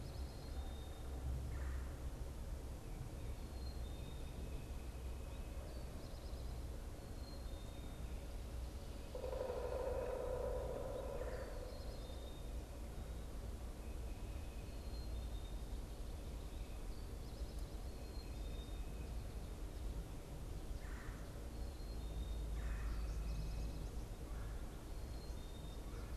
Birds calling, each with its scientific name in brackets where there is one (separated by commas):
Pileated Woodpecker (Dryocopus pileatus), Black-capped Chickadee (Poecile atricapillus), Red-bellied Woodpecker (Melanerpes carolinus)